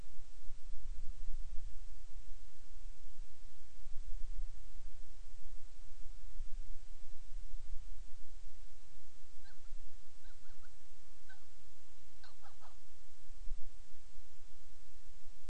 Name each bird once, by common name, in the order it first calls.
Hawaiian Petrel